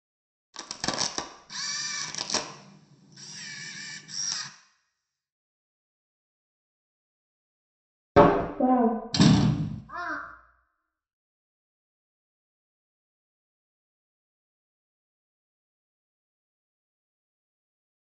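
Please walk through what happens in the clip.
At 0.53 seconds, crushing is heard. While that goes on, at 1.49 seconds, you can hear the sound of a camera. Then at 8.15 seconds, a wooden cupboard closes. After that, at 8.59 seconds, someone says "Wow." Afterwards, at 9.12 seconds, there is slamming. Finally, at 9.87 seconds, a crow can be heard.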